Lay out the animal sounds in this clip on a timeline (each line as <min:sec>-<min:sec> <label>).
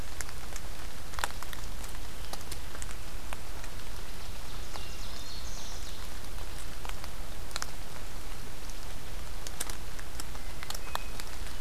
0:04.1-0:06.2 Ovenbird (Seiurus aurocapilla)
0:04.4-0:05.9 Black-throated Green Warbler (Setophaga virens)
0:04.5-0:05.3 Hermit Thrush (Catharus guttatus)
0:10.3-0:11.6 Hermit Thrush (Catharus guttatus)